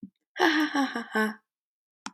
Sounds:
Laughter